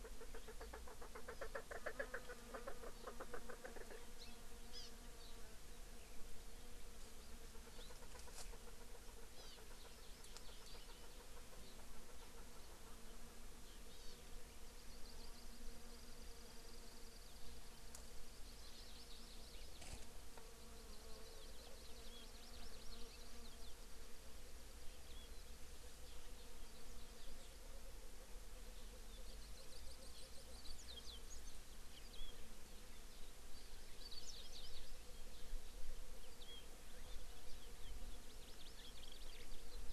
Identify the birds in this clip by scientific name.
Alectoris chukar, Chlorodrepanis virens, Zosterops japonicus, Haemorhous mexicanus